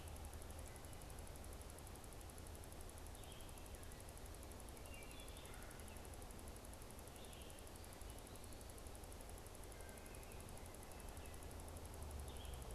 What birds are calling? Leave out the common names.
Vireo olivaceus, Hylocichla mustelina